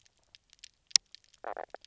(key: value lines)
label: biophony, knock croak
recorder: SoundTrap 300